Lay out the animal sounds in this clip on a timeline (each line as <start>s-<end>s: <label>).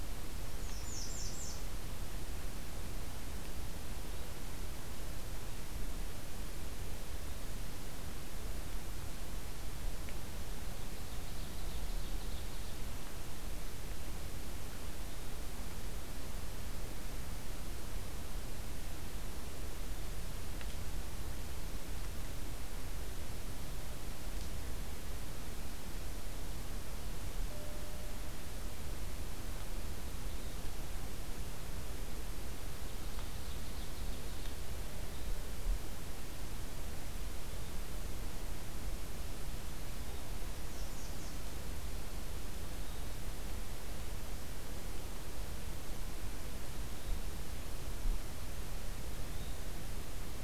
0.5s-1.6s: American Redstart (Setophaga ruticilla)
10.9s-12.8s: Ovenbird (Seiurus aurocapilla)
32.7s-34.5s: Ovenbird (Seiurus aurocapilla)
40.5s-41.4s: American Redstart (Setophaga ruticilla)